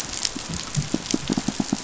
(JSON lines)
{"label": "biophony, pulse", "recorder": "SoundTrap 500"}